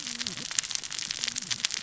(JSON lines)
{"label": "biophony, cascading saw", "recorder": "SoundTrap 600 or HydroMoth"}